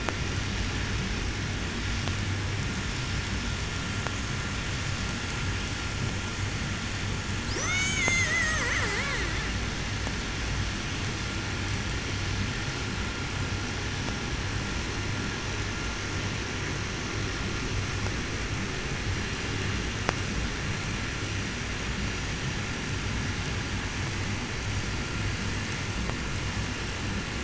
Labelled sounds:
7.2	9.7	killer whale, 0 to 8.0 kHz

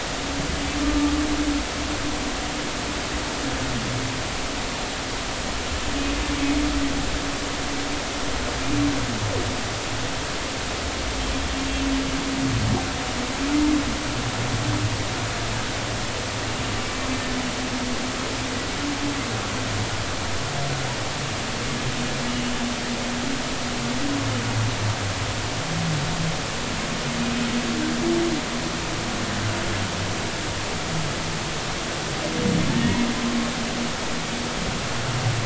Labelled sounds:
32.7	33.0	humpback whale, 1.7 to 2.0 kHz

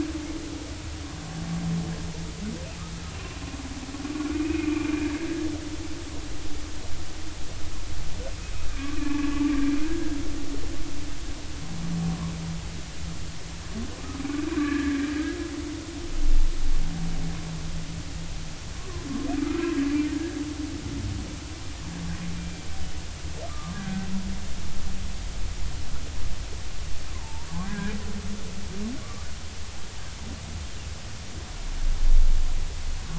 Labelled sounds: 3.1	3.4	humpback whale, 2.7 to 2.8 kHz
4.0	5.1	humpback whale, 1.1 to 2.6 kHz
8.8	9.4	humpback whale, 1.0 to 1.2 kHz
9.8	10.2	humpback whale, 1.5 to 1.7 kHz
14.6	15.1	humpback whale, 1.1 to 1.8 kHz
18.8	19.1	humpback whale, 0.99 to 1.2 kHz
19.4	19.7	humpback whale, 1.2 to 1.4 kHz
22.4	22.7	humpback whale, 2.3 to 2.4 kHz
23.5	24.1	humpback whale, 1.0 to 1.7 kHz
27.1	27.9	humpback whale, 0.83 to 1.7 kHz
29.0	29.3	humpback whale, 1.1 to 1.3 kHz

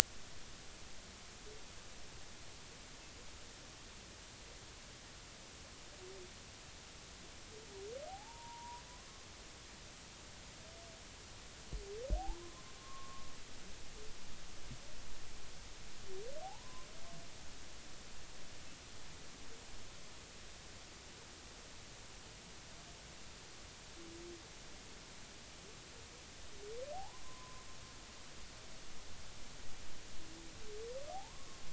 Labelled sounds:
8.1	8.8	humpback whale, 0.80 to 1.0 kHz
12.1	13.3	humpback whale, 0.80 to 1.2 kHz
16.4	16.9	humpback whale, 0.80 to 1.1 kHz
26.9	27.7	humpback whale, 0.80 to 1.1 kHz
31.1	31.5	humpback whale, 0.80 to 1.2 kHz

